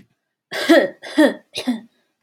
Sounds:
Cough